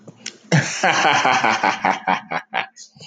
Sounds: Laughter